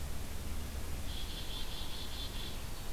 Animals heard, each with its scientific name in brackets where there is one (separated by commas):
Black-capped Chickadee (Poecile atricapillus)